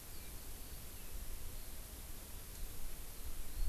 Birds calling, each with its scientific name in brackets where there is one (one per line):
Eurasian Skylark (Alauda arvensis)